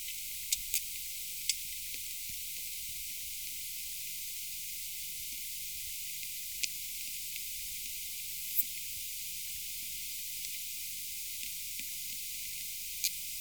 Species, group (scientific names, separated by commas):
Poecilimon thoracicus, Orthoptera